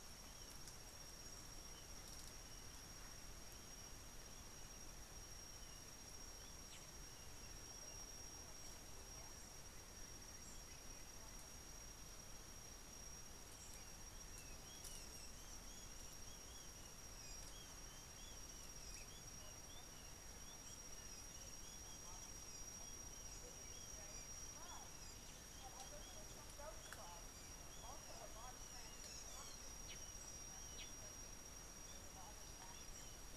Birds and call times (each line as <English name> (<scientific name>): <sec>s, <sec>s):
Kikuyu White-eye (Zosterops kikuyuensis): 18.3s
Collared Sunbird (Hedydipna collaris): 29.9s